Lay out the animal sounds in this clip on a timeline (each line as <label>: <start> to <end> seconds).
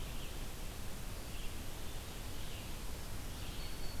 Red-eyed Vireo (Vireo olivaceus): 0.0 to 4.0 seconds
Black-throated Green Warbler (Setophaga virens): 3.3 to 4.0 seconds